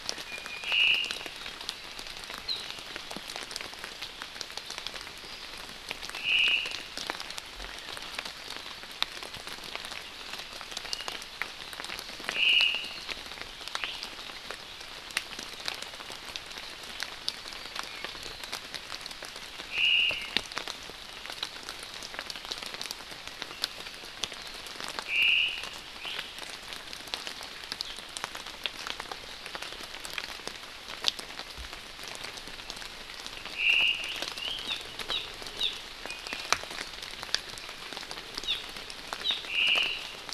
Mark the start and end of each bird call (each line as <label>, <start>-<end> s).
Iiwi (Drepanis coccinea), 0.3-0.6 s
Omao (Myadestes obscurus), 0.6-1.2 s
Omao (Myadestes obscurus), 6.1-6.9 s
Omao (Myadestes obscurus), 12.3-13.0 s
Iiwi (Drepanis coccinea), 13.8-13.9 s
Omao (Myadestes obscurus), 19.7-20.4 s
Omao (Myadestes obscurus), 25.1-25.7 s
Iiwi (Drepanis coccinea), 26.0-26.3 s
Omao (Myadestes obscurus), 33.5-34.1 s
Hawaii Amakihi (Chlorodrepanis virens), 34.7-34.8 s
Hawaii Amakihi (Chlorodrepanis virens), 35.1-35.3 s
Hawaii Amakihi (Chlorodrepanis virens), 35.6-35.7 s
Iiwi (Drepanis coccinea), 36.1-36.7 s
Hawaii Amakihi (Chlorodrepanis virens), 38.4-38.6 s
Hawaii Amakihi (Chlorodrepanis virens), 39.2-39.4 s
Omao (Myadestes obscurus), 39.4-40.0 s